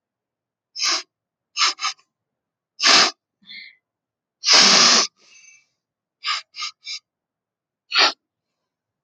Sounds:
Sniff